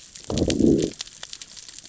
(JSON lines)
{"label": "biophony, growl", "recorder": "SoundTrap 600 or HydroMoth"}